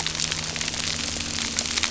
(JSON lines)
{"label": "anthrophony, boat engine", "recorder": "SoundTrap 300"}